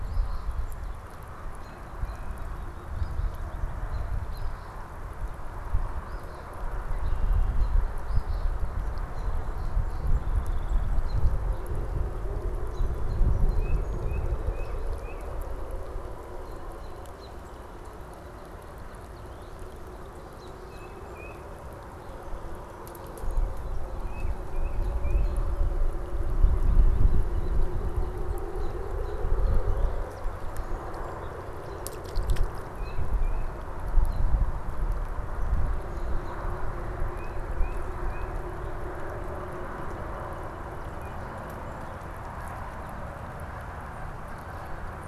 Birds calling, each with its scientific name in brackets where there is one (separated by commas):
Northern Cardinal (Cardinalis cardinalis), Red-winged Blackbird (Agelaius phoeniceus), Tufted Titmouse (Baeolophus bicolor), American Robin (Turdus migratorius), Eastern Phoebe (Sayornis phoebe), Song Sparrow (Melospiza melodia)